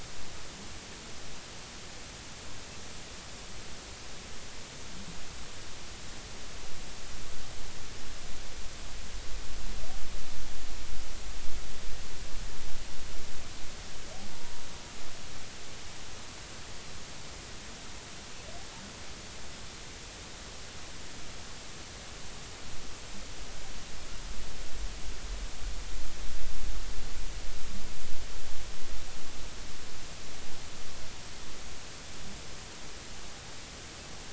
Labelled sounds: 14.3	14.6	humpback whale, 0.86 to 0.99 kHz

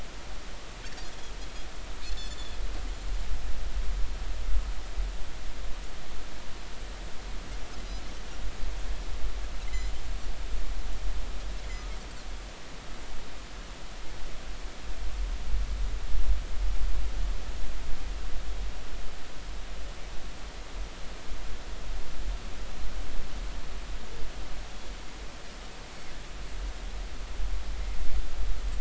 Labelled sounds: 2.0	2.6	Pacific white-sided dolphin, 3.3 to 4.5 kHz
9.7	9.9	Pacific white-sided dolphin, 1.9 to 2.2 kHz

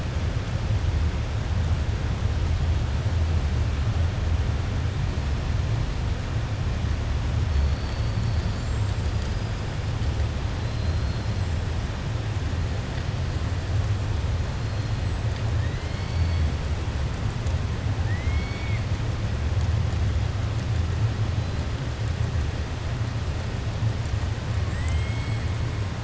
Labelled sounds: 8.5	9.0	killer whale, 6.7 to 7.7 kHz
10.6	11.4	killer whale, 4.0 to 5.2 kHz
15.6	16.5	killer whale, 1.8 to 5.2 kHz
18.0	18.8	killer whale, 1.8 to 5.3 kHz
24.6	25.4	killer whale, 1.1 to 3.7 kHz

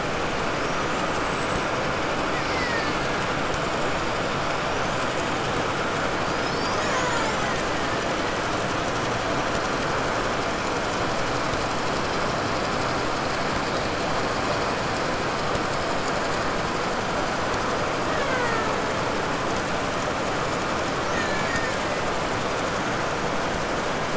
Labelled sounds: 0.3	1.8	killer whale, 3.8 to 8.0 kHz
2.1	3.5	killer whale, Bigg's (transient), 0.86 to 6.9 kHz
4.1	5.4	killer whale, 4.0 to 7.3 kHz
6.1	8.6	killer whale, Bigg's (transient), 0.57 to 7.6 kHz
17.9	19.1	killer whale, Bigg's (transient), 0.27 to 4.8 kHz
20.8	22.2	killer whale, 1.2 to 7.4 kHz

